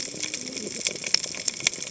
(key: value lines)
label: biophony, cascading saw
recorder: HydroMoth